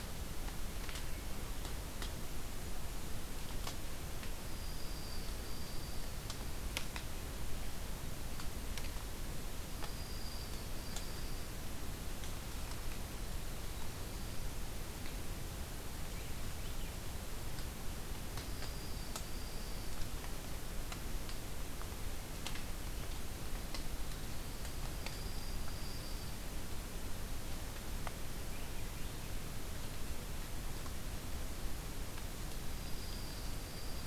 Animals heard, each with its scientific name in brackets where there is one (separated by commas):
Swainson's Thrush (Catharus ustulatus), Dark-eyed Junco (Junco hyemalis), Winter Wren (Troglodytes hiemalis)